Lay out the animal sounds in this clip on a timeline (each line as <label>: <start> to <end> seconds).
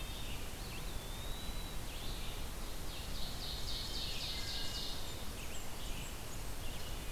Red-eyed Vireo (Vireo olivaceus): 0.0 to 2.4 seconds
Eastern Wood-Pewee (Contopus virens): 0.4 to 2.0 seconds
Ovenbird (Seiurus aurocapilla): 2.4 to 5.0 seconds
Wood Thrush (Hylocichla mustelina): 4.0 to 5.0 seconds
Blackburnian Warbler (Setophaga fusca): 4.8 to 6.8 seconds
Red-eyed Vireo (Vireo olivaceus): 5.6 to 7.1 seconds
Wood Thrush (Hylocichla mustelina): 6.5 to 7.1 seconds